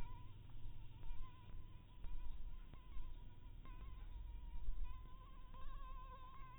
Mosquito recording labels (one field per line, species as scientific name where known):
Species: Anopheles harrisoni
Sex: female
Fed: blood-fed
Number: one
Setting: cup